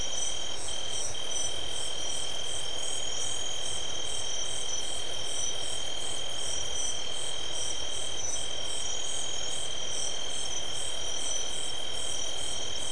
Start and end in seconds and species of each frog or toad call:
none
11:30pm

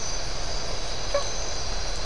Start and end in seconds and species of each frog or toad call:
1.0	1.5	blacksmith tree frog
3:45am

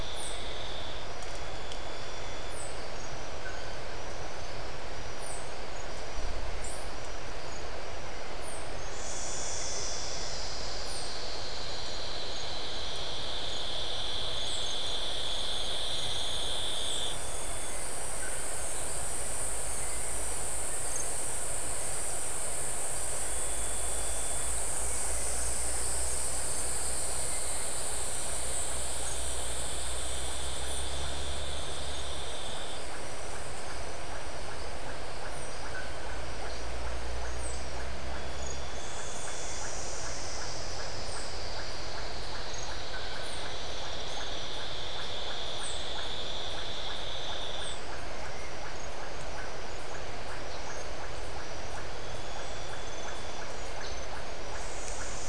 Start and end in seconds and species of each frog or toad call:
25.3	55.2	Iporanga white-lipped frog
5:30pm

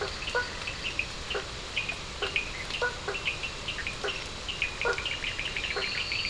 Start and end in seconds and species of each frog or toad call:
0.0	1.2	two-colored oval frog
0.0	6.2	blacksmith tree frog
0.0	6.2	Cochran's lime tree frog
4.6	6.2	Bischoff's tree frog
5.5	6.2	two-colored oval frog
1:00am

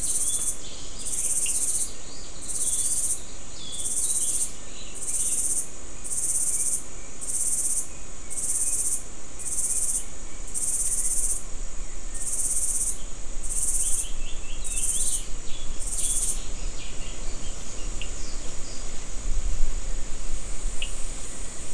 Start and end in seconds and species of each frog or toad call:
1.4	1.6	Cochran's lime tree frog
18.0	18.1	Cochran's lime tree frog
20.8	20.9	Cochran's lime tree frog
6:45pm

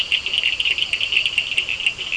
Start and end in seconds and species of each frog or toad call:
0.0	2.1	blacksmith tree frog
0.0	2.1	two-colored oval frog
0.0	2.1	Cochran's lime tree frog
1.0	2.1	Physalaemus cuvieri
7:30pm

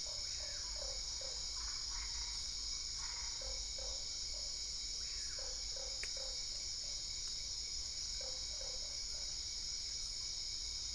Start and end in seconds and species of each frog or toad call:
0.0	1.4	Usina tree frog
1.5	3.5	Boana albopunctata
3.4	6.5	Usina tree frog
8.2	9.5	Usina tree frog
8:30pm

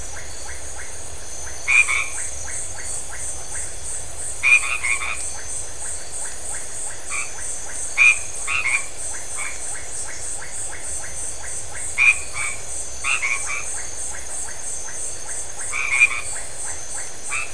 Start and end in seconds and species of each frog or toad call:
0.0	17.5	Iporanga white-lipped frog
1.6	2.2	white-edged tree frog
4.2	5.4	white-edged tree frog
6.9	9.9	white-edged tree frog
11.8	13.6	white-edged tree frog
15.6	17.5	white-edged tree frog
11:00pm

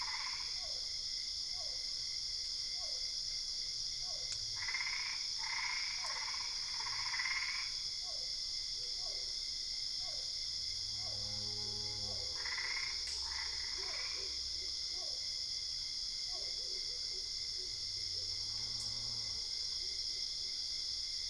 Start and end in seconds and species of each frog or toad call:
0.0	0.7	Boana albopunctata
0.0	4.6	Physalaemus cuvieri
4.3	7.9	Boana albopunctata
5.9	6.7	Physalaemus cuvieri
7.9	10.6	Physalaemus cuvieri
12.1	14.4	Boana albopunctata
13.8	16.9	Physalaemus cuvieri
2:00am

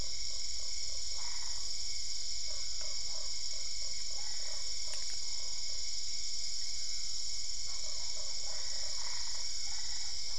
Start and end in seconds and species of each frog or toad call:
0.0	1.3	Usina tree frog
1.0	1.7	Boana albopunctata
2.4	5.1	Usina tree frog
7.7	9.2	Usina tree frog
8.5	10.2	Boana albopunctata
10:45pm

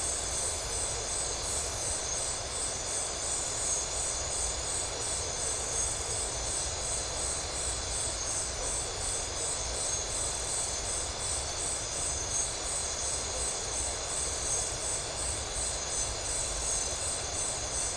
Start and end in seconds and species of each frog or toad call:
none
12:30am

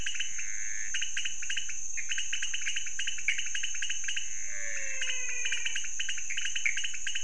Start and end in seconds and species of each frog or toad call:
0.0	7.2	pointedbelly frog
0.0	7.2	Pithecopus azureus
4.5	6.1	menwig frog
1:30am

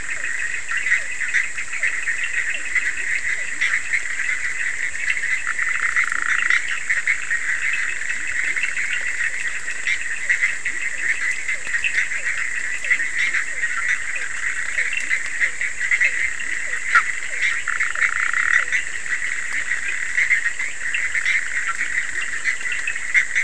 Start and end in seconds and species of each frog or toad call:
0.0	3.6	Physalaemus cuvieri
0.0	16.1	Cochran's lime tree frog
0.0	23.4	Bischoff's tree frog
6.0	6.6	Leptodactylus latrans
7.9	8.7	Leptodactylus latrans
10.7	18.8	Physalaemus cuvieri
21.7	22.4	Leptodactylus latrans
11:30pm

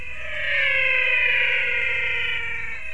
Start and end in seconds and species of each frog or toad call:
0.0	2.9	menwig frog
2.4	2.9	spot-legged poison frog
5:45pm

